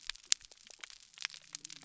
{"label": "biophony", "recorder": "SoundTrap 300"}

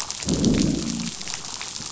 {"label": "biophony, growl", "recorder": "SoundTrap 500"}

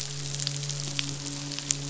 {"label": "biophony, midshipman", "recorder": "SoundTrap 500"}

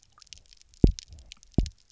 {"label": "biophony, double pulse", "recorder": "SoundTrap 300"}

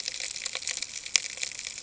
{"label": "ambient", "recorder": "HydroMoth"}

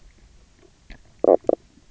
{"label": "biophony, knock croak", "recorder": "SoundTrap 300"}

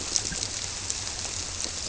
{"label": "biophony", "recorder": "SoundTrap 300"}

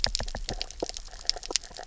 {"label": "biophony, knock", "recorder": "SoundTrap 300"}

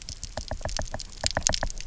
{"label": "biophony, knock", "recorder": "SoundTrap 300"}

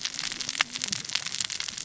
{"label": "biophony, cascading saw", "recorder": "SoundTrap 600 or HydroMoth"}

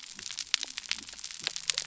{"label": "biophony", "recorder": "SoundTrap 300"}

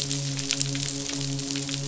{"label": "biophony, midshipman", "recorder": "SoundTrap 500"}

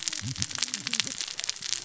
{"label": "biophony, cascading saw", "recorder": "SoundTrap 600 or HydroMoth"}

